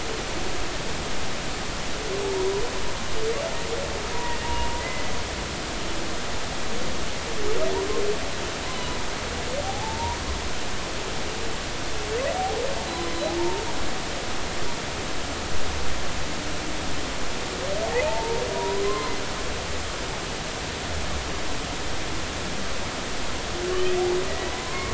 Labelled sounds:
4.1	5.1	humpback whale, 0.90 to 2.1 kHz
9.6	10.2	humpback whale, 0.80 to 1.0 kHz
13.4	13.6	humpback whale, 0.86 to 0.96 kHz
18.0	19.1	humpback whale, 0.83 to 1.1 kHz
23.7	24.9	humpback whale, 0.96 to 2.0 kHz

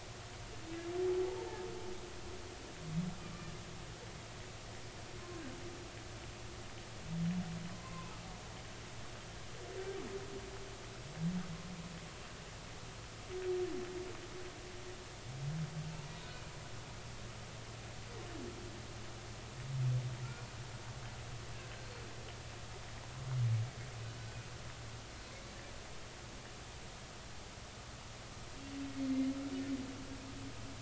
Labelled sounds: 7.7	8.1	humpback whale, 0.96 to 2.1 kHz
21.5	21.9	humpback whale, 1.5 to 1.7 kHz
29.1	29.3	humpback whale, 2.0 to 2.2 kHz

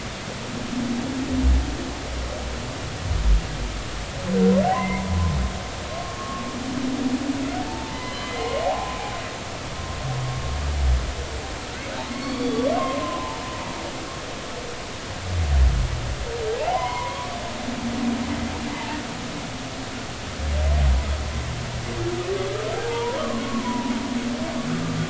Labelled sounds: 4.7	6.4	humpback whale, 0.86 to 2.2 kHz
7.6	9.0	humpback whale, 0.80 to 3.1 kHz
12.1	13.4	humpback whale, 0.83 to 4.6 kHz
16.5	17.3	humpback whale, 0.80 to 2.3 kHz
18.7	19.0	humpback whale, 0.83 to 0.96 kHz
22.8	23.9	humpback whale, 0.80 to 1.3 kHz

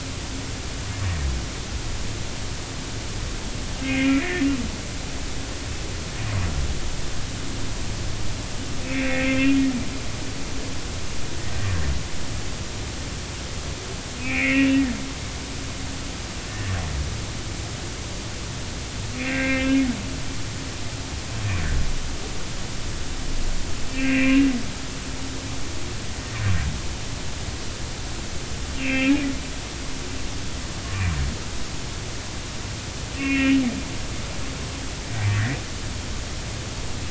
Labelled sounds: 3.8	4.5	humpback whale, 1.6 to 2.6 kHz
8.9	9.6	humpback whale, 2.1 to 3.4 kHz
14.2	15.7	humpback whale, 1.7 to 2.9 kHz
16.5	16.7	humpback whale, 1.7 to 1.9 kHz
19.1	19.8	humpback whale, 1.5 to 2.8 kHz
23.9	24.5	humpback whale, 2.3 to 2.8 kHz
28.7	29.1	humpback whale, 2.0 to 2.9 kHz
33.1	33.6	humpback whale, 1.8 to 3.0 kHz

